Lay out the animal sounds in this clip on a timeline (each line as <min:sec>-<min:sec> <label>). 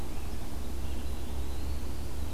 0:00.0-0:02.3 Red-eyed Vireo (Vireo olivaceus)
0:00.8-0:02.2 Eastern Wood-Pewee (Contopus virens)